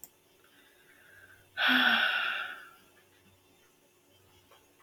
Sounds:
Sigh